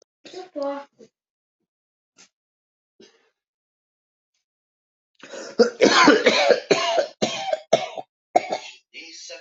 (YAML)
expert_labels:
- quality: good
  cough_type: wet
  dyspnea: false
  wheezing: false
  stridor: false
  choking: false
  congestion: false
  nothing: true
  diagnosis: lower respiratory tract infection
  severity: severe
age: 41
gender: male
respiratory_condition: false
fever_muscle_pain: false
status: symptomatic